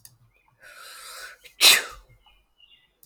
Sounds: Sneeze